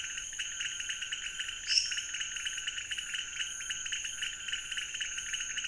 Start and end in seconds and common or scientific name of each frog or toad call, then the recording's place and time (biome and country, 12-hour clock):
0.0	5.6	pointedbelly frog
1.6	2.2	lesser tree frog
Cerrado, Brazil, 3:00am